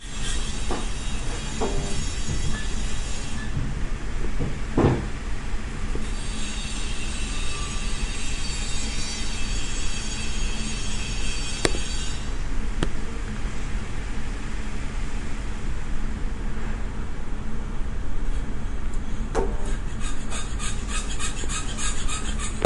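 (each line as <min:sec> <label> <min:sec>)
0:00.0 A metal saw grating as it slices through material. 0:03.4
0:00.0 A deep, whirring hum. 0:22.7
0:00.7 A distinct knock sounds. 0:01.0
0:01.6 A dull, muted thud as a machine pedal is pressed. 0:02.2
0:02.5 Light flickering twice. 0:04.0
0:04.7 A distinct knock sounds. 0:05.3
0:06.4 A metal saw grating as it slices through material. 0:12.3
0:11.6 A soft click. 0:11.8
0:12.8 A soft click. 0:12.9
0:19.4 A dull, muted thud as a machine pedal is pressed. 0:19.8
0:19.8 A hand saw scraping as it grinds through metal. 0:22.7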